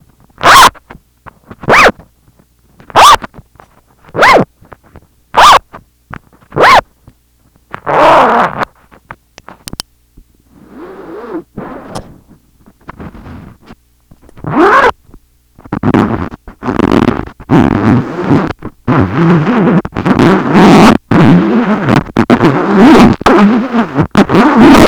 does the zipper stop and never start again?
no